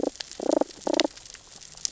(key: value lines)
label: biophony, damselfish
recorder: SoundTrap 600 or HydroMoth